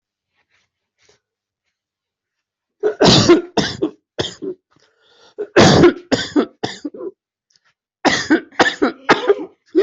{"expert_labels": [{"quality": "ok", "cough_type": "wet", "dyspnea": false, "wheezing": false, "stridor": false, "choking": false, "congestion": false, "nothing": true, "diagnosis": "lower respiratory tract infection", "severity": "mild"}]}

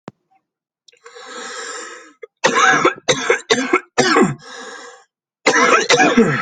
{"expert_labels": [{"quality": "ok", "cough_type": "dry", "dyspnea": false, "wheezing": false, "stridor": false, "choking": false, "congestion": false, "nothing": true, "diagnosis": "COVID-19", "severity": "mild"}, {"quality": "good", "cough_type": "wet", "dyspnea": false, "wheezing": false, "stridor": false, "choking": false, "congestion": false, "nothing": true, "diagnosis": "lower respiratory tract infection", "severity": "mild"}, {"quality": "good", "cough_type": "wet", "dyspnea": false, "wheezing": false, "stridor": false, "choking": false, "congestion": false, "nothing": true, "diagnosis": "lower respiratory tract infection", "severity": "severe"}, {"quality": "good", "cough_type": "dry", "dyspnea": true, "wheezing": false, "stridor": false, "choking": false, "congestion": false, "nothing": false, "diagnosis": "COVID-19", "severity": "severe"}], "age": 40, "gender": "male", "respiratory_condition": false, "fever_muscle_pain": false, "status": "symptomatic"}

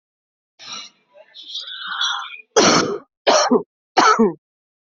{"expert_labels": [{"quality": "good", "cough_type": "wet", "dyspnea": false, "wheezing": false, "stridor": false, "choking": false, "congestion": false, "nothing": true, "diagnosis": "lower respiratory tract infection", "severity": "mild"}], "age": 28, "gender": "female", "respiratory_condition": true, "fever_muscle_pain": false, "status": "symptomatic"}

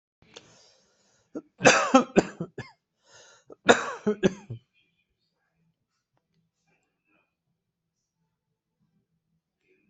{"expert_labels": [{"quality": "ok", "cough_type": "dry", "dyspnea": false, "wheezing": false, "stridor": false, "choking": false, "congestion": false, "nothing": true, "diagnosis": "healthy cough", "severity": "pseudocough/healthy cough"}], "age": 67, "gender": "male", "respiratory_condition": false, "fever_muscle_pain": false, "status": "healthy"}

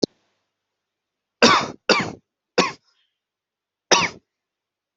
{"expert_labels": [{"quality": "ok", "cough_type": "dry", "dyspnea": false, "wheezing": true, "stridor": false, "choking": false, "congestion": false, "nothing": false, "diagnosis": "obstructive lung disease", "severity": "mild"}], "age": 24, "gender": "male", "respiratory_condition": true, "fever_muscle_pain": true, "status": "symptomatic"}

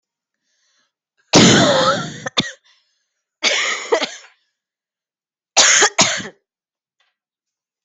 {"expert_labels": [{"quality": "ok", "cough_type": "dry", "dyspnea": false, "wheezing": false, "stridor": false, "choking": false, "congestion": false, "nothing": true, "diagnosis": "COVID-19", "severity": "mild"}], "age": 33, "gender": "female", "respiratory_condition": false, "fever_muscle_pain": false, "status": "symptomatic"}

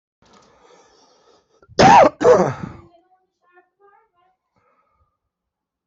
{"expert_labels": [{"quality": "ok", "cough_type": "unknown", "dyspnea": false, "wheezing": false, "stridor": false, "choking": false, "congestion": false, "nothing": true, "diagnosis": "lower respiratory tract infection", "severity": "mild"}], "age": 41, "gender": "male", "respiratory_condition": false, "fever_muscle_pain": false, "status": "healthy"}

